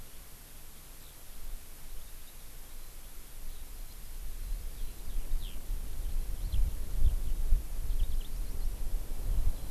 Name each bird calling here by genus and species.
Alauda arvensis